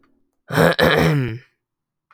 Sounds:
Throat clearing